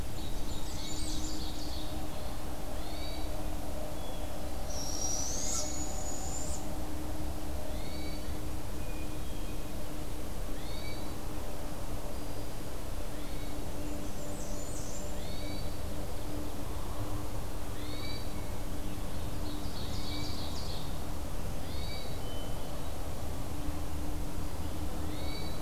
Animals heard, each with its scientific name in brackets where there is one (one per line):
Ovenbird (Seiurus aurocapilla)
Barred Owl (Strix varia)
Hermit Thrush (Catharus guttatus)
Blackburnian Warbler (Setophaga fusca)